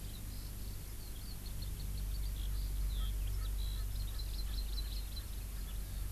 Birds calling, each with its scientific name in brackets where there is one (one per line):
Erckel's Francolin (Pternistis erckelii)
Hawaii Amakihi (Chlorodrepanis virens)
Eurasian Skylark (Alauda arvensis)